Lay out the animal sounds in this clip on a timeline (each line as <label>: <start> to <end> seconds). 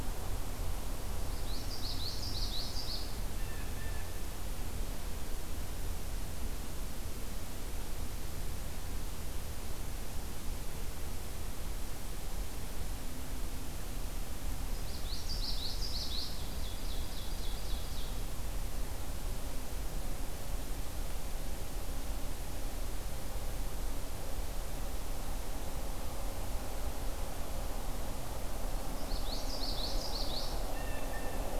Common Yellowthroat (Geothlypis trichas): 1.1 to 3.3 seconds
Blue Jay (Cyanocitta cristata): 3.1 to 4.2 seconds
Common Yellowthroat (Geothlypis trichas): 14.5 to 16.6 seconds
Ovenbird (Seiurus aurocapilla): 16.2 to 18.3 seconds
Common Yellowthroat (Geothlypis trichas): 28.9 to 30.7 seconds
Blue Jay (Cyanocitta cristata): 30.5 to 31.6 seconds